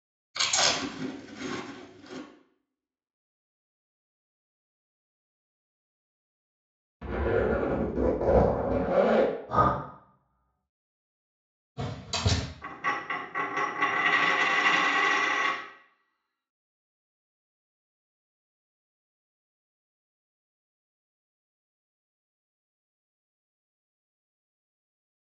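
At 0.3 seconds, someone chews. Then at 7.0 seconds, you can hear a zipper. At 9.5 seconds, breathing can be heard. Next, at 11.8 seconds, slamming is heard. At 12.6 seconds, a coin drops.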